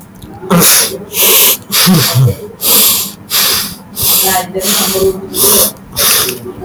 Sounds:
Sniff